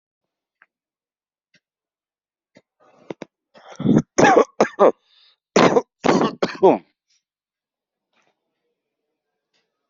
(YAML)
expert_labels:
- quality: good
  cough_type: dry
  dyspnea: false
  wheezing: false
  stridor: false
  choking: false
  congestion: false
  nothing: true
  diagnosis: obstructive lung disease
  severity: mild
age: 45
gender: male
respiratory_condition: true
fever_muscle_pain: false
status: symptomatic